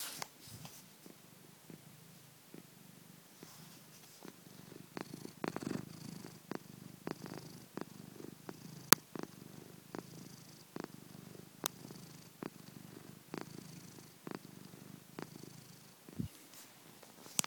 does a person talk?
no